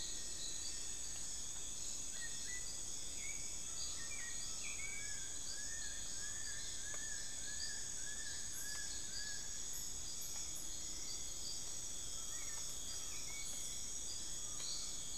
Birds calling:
Buckley's Forest-Falcon (Micrastur buckleyi), Long-billed Woodcreeper (Nasica longirostris), Black-billed Thrush (Turdus ignobilis), Rufous-fronted Antthrush (Formicarius rufifrons), Hauxwell's Thrush (Turdus hauxwelli)

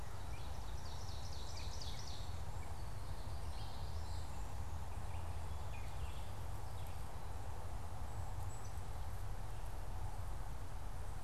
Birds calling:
Ovenbird (Seiurus aurocapilla), Common Yellowthroat (Geothlypis trichas)

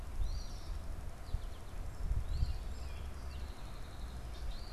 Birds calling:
Eastern Phoebe (Sayornis phoebe), American Goldfinch (Spinus tristis), Song Sparrow (Melospiza melodia), Red-winged Blackbird (Agelaius phoeniceus)

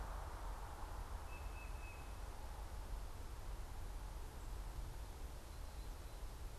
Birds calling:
Tufted Titmouse (Baeolophus bicolor)

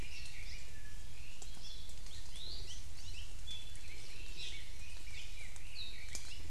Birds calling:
Apapane (Himatione sanguinea), Red-billed Leiothrix (Leiothrix lutea), Hawaii Creeper (Loxops mana), Iiwi (Drepanis coccinea)

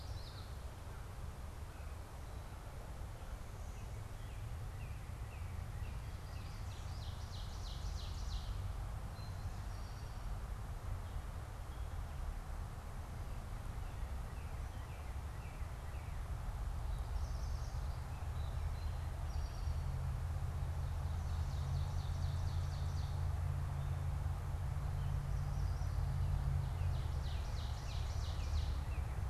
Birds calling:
Eastern Towhee (Pipilo erythrophthalmus), Common Yellowthroat (Geothlypis trichas), American Crow (Corvus brachyrhynchos), Yellow Warbler (Setophaga petechia), Northern Cardinal (Cardinalis cardinalis), Ovenbird (Seiurus aurocapilla)

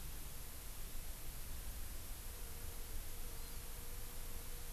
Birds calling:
Hawaii Amakihi (Chlorodrepanis virens)

